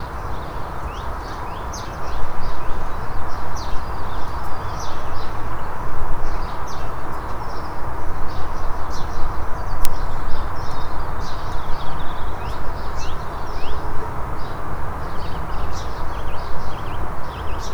What are the birds doing?
chirping